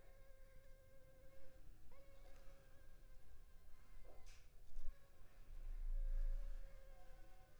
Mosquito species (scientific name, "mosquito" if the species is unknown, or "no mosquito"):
Anopheles funestus s.s.